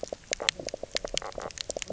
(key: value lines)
label: biophony, knock croak
recorder: SoundTrap 300